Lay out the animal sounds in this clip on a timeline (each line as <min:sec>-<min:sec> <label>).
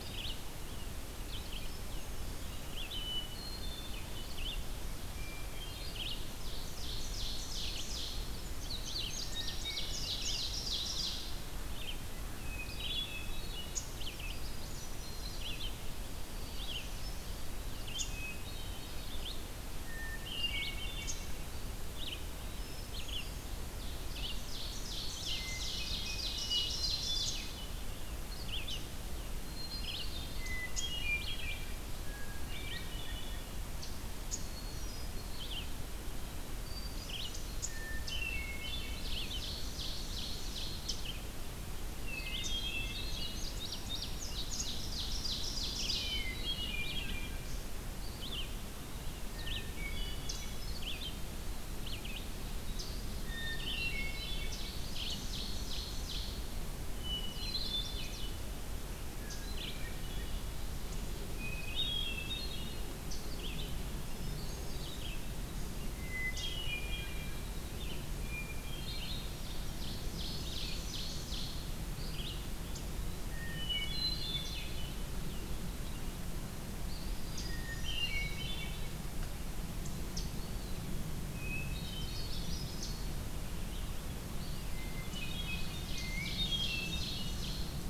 0:00.0-1:24.8 Red-eyed Vireo (Vireo olivaceus)
0:01.3-0:04.3 Hermit Thrush (Catharus guttatus)
0:05.1-0:06.3 Hermit Thrush (Catharus guttatus)
0:06.6-0:08.3 Ovenbird (Seiurus aurocapilla)
0:08.4-0:10.1 Indigo Bunting (Passerina cyanea)
0:09.4-0:11.5 Ovenbird (Seiurus aurocapilla)
0:12.4-0:15.7 Hermit Thrush (Catharus guttatus)
0:16.2-0:17.4 Hermit Thrush (Catharus guttatus)
0:17.9-0:19.4 Hermit Thrush (Catharus guttatus)
0:20.0-0:21.6 Hermit Thrush (Catharus guttatus)
0:22.2-0:23.5 Hermit Thrush (Catharus guttatus)
0:23.8-0:27.6 Ovenbird (Seiurus aurocapilla)
0:25.1-0:27.6 Hermit Thrush (Catharus guttatus)
0:29.5-0:33.7 Hermit Thrush (Catharus guttatus)
0:34.2-0:35.5 Hermit Thrush (Catharus guttatus)
0:36.5-0:39.4 Hermit Thrush (Catharus guttatus)
0:38.8-0:41.2 Ovenbird (Seiurus aurocapilla)
0:42.1-0:43.5 Hermit Thrush (Catharus guttatus)
0:42.5-0:44.2 Indigo Bunting (Passerina cyanea)
0:44.2-0:46.2 Ovenbird (Seiurus aurocapilla)
0:45.9-0:47.3 Hermit Thrush (Catharus guttatus)
0:49.6-0:50.8 Hermit Thrush (Catharus guttatus)
0:53.4-0:54.7 Hermit Thrush (Catharus guttatus)
0:54.2-0:56.7 Ovenbird (Seiurus aurocapilla)
0:56.9-0:58.3 Hermit Thrush (Catharus guttatus)
0:57.1-0:58.3 Chestnut-sided Warbler (Setophaga pensylvanica)
0:59.4-1:00.6 Hermit Thrush (Catharus guttatus)
1:01.2-1:02.9 Hermit Thrush (Catharus guttatus)
1:04.1-1:05.2 Hermit Thrush (Catharus guttatus)
1:05.8-1:07.5 Hermit Thrush (Catharus guttatus)
1:08.1-1:09.4 Hermit Thrush (Catharus guttatus)
1:09.4-1:11.6 Ovenbird (Seiurus aurocapilla)
1:13.1-1:15.0 Hermit Thrush (Catharus guttatus)
1:17.3-1:19.1 Hermit Thrush (Catharus guttatus)
1:20.3-1:21.2 Eastern Wood-Pewee (Contopus virens)
1:21.2-1:22.7 Hermit Thrush (Catharus guttatus)
1:21.5-1:22.8 Chestnut-sided Warbler (Setophaga pensylvanica)
1:24.5-1:27.9 Ovenbird (Seiurus aurocapilla)
1:24.7-1:27.5 Hermit Thrush (Catharus guttatus)